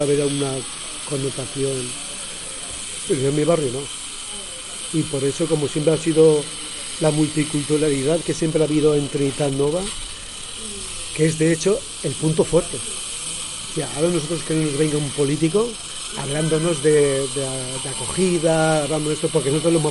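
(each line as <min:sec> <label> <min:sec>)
0:00.0 A man is speaking with occasional pauses. 0:19.9
0:00.0 A saw is running in the background. 0:19.9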